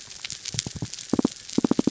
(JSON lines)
{"label": "biophony", "recorder": "SoundTrap 300"}